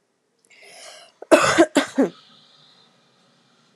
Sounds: Cough